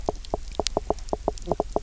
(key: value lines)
label: biophony, knock croak
recorder: SoundTrap 300